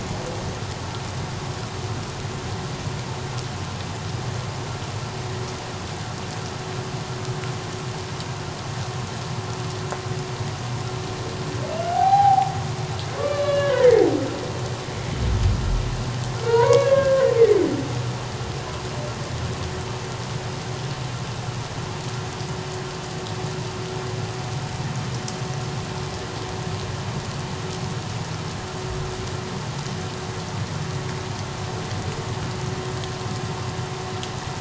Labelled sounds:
11.9	12.5	humpback whale, 0.78 to 0.94 kHz
13.2	14.1	humpback whale, 1.1 to 4.1 kHz
16.4	17.3	humpback whale, 0.88 to 2.3 kHz

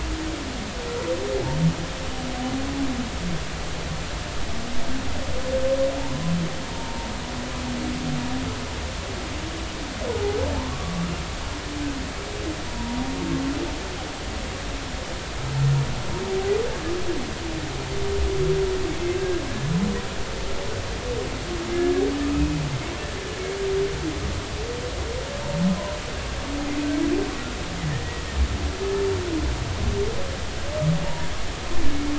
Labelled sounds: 6.7	7.1	humpback whale, 0.86 to 0.96 kHz
10.5	11.0	humpback whale, 0.80 to 1.2 kHz
12.7	13.0	humpback whale, 0.90 to 0.99 kHz
19.0	19.7	humpback whale, 1.6 to 2.7 kHz
21.7	22.5	humpback whale, 1.2 to 2.6 kHz
27.9	28.2	humpback whale, 1.7 to 2.0 kHz
31.0	31.3	humpback whale, 0.86 to 0.99 kHz

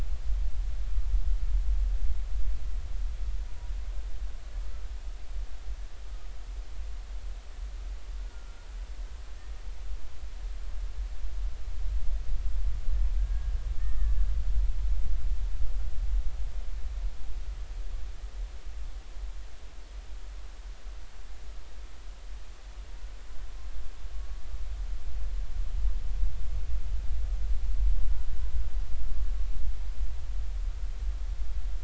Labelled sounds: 8.2	8.6	humpback whale, 1.3 to 1.5 kHz
13.2	14.2	humpback whale, 1.1 to 1.9 kHz

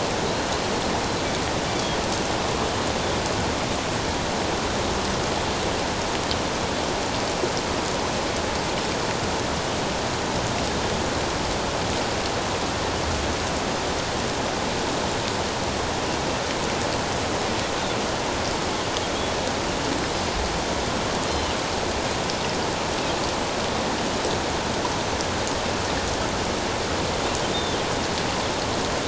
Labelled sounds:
21.3	21.6	Pacific white-sided dolphin, 2.8 to 3.2 kHz
27.5	27.8	Pacific white-sided dolphin, 3.5 to 3.7 kHz

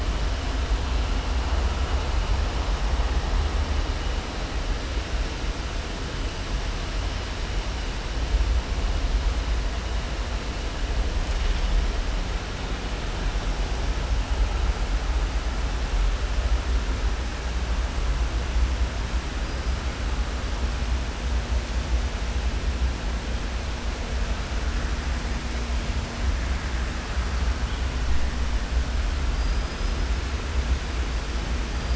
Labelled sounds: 29.3	30.0	killer whale, southern resident, 4.8 to 5.1 kHz

